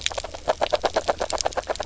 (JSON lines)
{"label": "biophony, grazing", "recorder": "SoundTrap 300"}